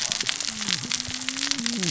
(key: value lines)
label: biophony, cascading saw
recorder: SoundTrap 600 or HydroMoth